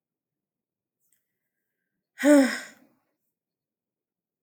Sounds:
Sigh